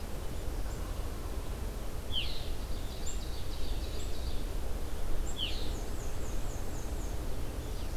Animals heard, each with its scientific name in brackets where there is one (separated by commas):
Ovenbird (Seiurus aurocapilla), Black-and-white Warbler (Mniotilta varia), Red-eyed Vireo (Vireo olivaceus)